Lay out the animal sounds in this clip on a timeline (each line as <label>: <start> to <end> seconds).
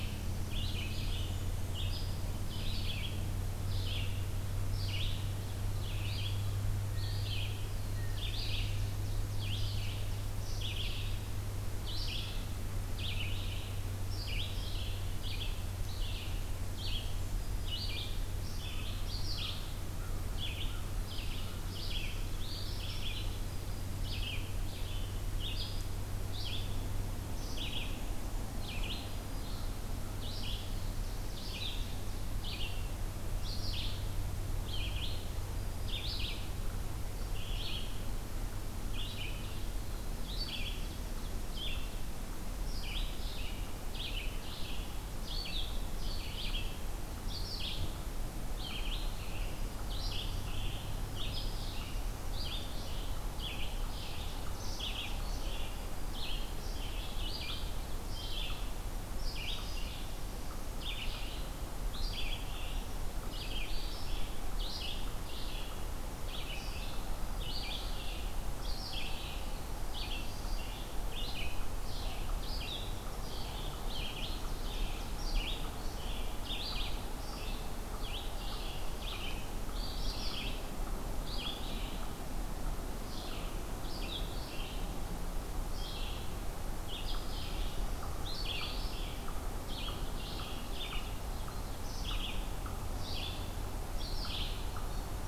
Red-eyed Vireo (Vireo olivaceus): 0.0 to 17.1 seconds
Blackburnian Warbler (Setophaga fusca): 0.6 to 2.1 seconds
Ovenbird (Seiurus aurocapilla): 8.1 to 10.7 seconds
Red-eyed Vireo (Vireo olivaceus): 17.5 to 95.3 seconds
American Crow (Corvus brachyrhynchos): 19.2 to 21.8 seconds
Black-throated Green Warbler (Setophaga virens): 23.4 to 24.4 seconds
Black-throated Green Warbler (Setophaga virens): 28.4 to 29.8 seconds
Ovenbird (Seiurus aurocapilla): 30.6 to 32.2 seconds
Black-throated Green Warbler (Setophaga virens): 35.4 to 36.6 seconds
Ovenbird (Seiurus aurocapilla): 40.0 to 41.7 seconds
Ovenbird (Seiurus aurocapilla): 72.9 to 75.4 seconds